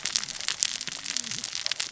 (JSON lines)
{"label": "biophony, cascading saw", "recorder": "SoundTrap 600 or HydroMoth"}